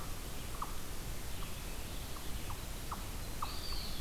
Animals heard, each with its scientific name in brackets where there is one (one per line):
unknown mammal
Red-eyed Vireo (Vireo olivaceus)
Eastern Wood-Pewee (Contopus virens)